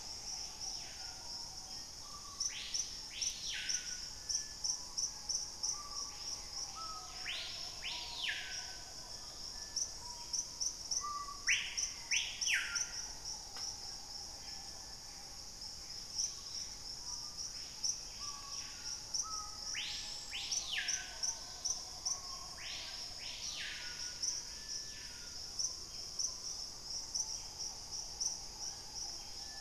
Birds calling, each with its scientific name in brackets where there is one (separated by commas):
Gray Antbird (Cercomacra cinerascens), Dusky-capped Greenlet (Pachysylvia hypoxantha), White-crested Spadebill (Platyrinchus platyrhynchos), unidentified bird, Black-faced Antthrush (Formicarius analis), Screaming Piha (Lipaugus vociferans)